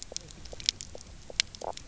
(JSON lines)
{"label": "biophony, knock croak", "recorder": "SoundTrap 300"}